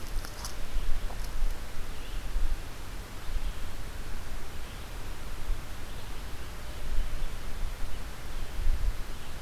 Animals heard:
forest ambience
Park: Marsh-Billings-Rockefeller National Historical Park